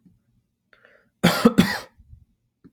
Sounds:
Cough